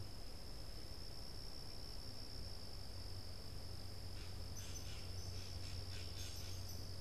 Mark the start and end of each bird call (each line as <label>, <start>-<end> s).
Blue Jay (Cyanocitta cristata), 3.8-7.0 s